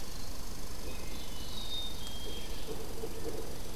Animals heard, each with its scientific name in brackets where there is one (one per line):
Red Squirrel (Tamiasciurus hudsonicus)
Wood Thrush (Hylocichla mustelina)
Black-capped Chickadee (Poecile atricapillus)